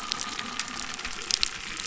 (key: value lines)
label: anthrophony, boat engine
recorder: SoundTrap 300